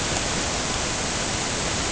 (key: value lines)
label: ambient
recorder: HydroMoth